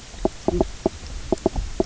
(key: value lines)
label: biophony, knock croak
recorder: SoundTrap 300